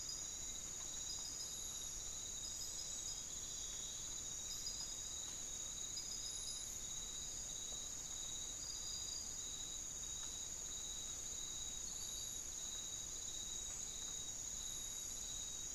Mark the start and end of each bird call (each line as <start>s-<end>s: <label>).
0.0s-15.7s: Hauxwell's Thrush (Turdus hauxwelli)